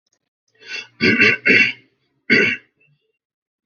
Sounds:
Throat clearing